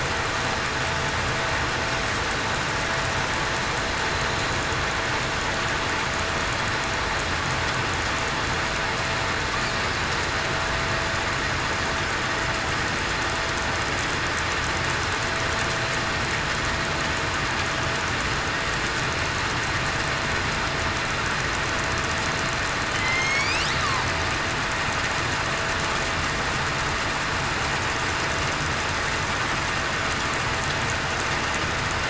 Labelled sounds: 22.9	23.5	killer whale, southern resident, 3.0 to 3.4 kHz

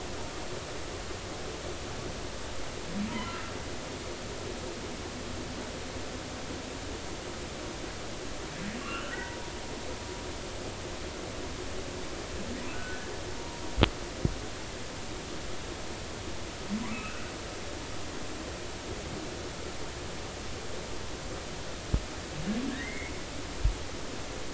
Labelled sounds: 3.1	3.4	humpback whale, 0.90 to 3.2 kHz
8.8	9.5	humpback whale, 0.90 to 3.1 kHz
12.7	13.1	humpback whale, 1.4 to 1.6 kHz
16.9	17.3	humpback whale, 1.2 to 2.8 kHz
22.7	23.1	humpback whale, 1.6 to 2.3 kHz

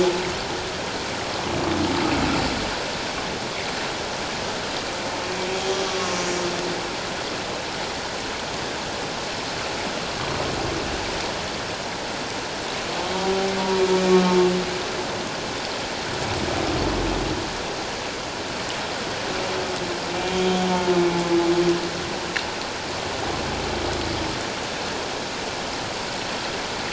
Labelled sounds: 5.5	5.8	humpback whale, 3.2 to 3.4 kHz
6.1	6.4	humpback whale, 6.5 to 6.6 kHz

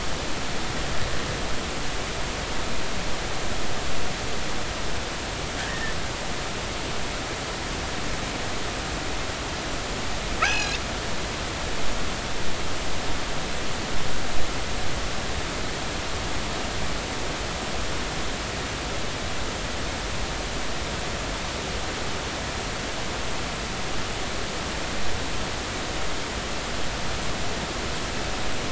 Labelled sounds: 5.6	5.9	killer whale, northern resident, 1.5 to 1.9 kHz
10.4	10.8	killer whale, northern resident, 1.2 to 6.8 kHz

